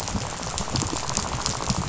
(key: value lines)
label: biophony, rattle
recorder: SoundTrap 500